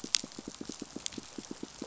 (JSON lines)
{"label": "biophony, pulse", "recorder": "SoundTrap 500"}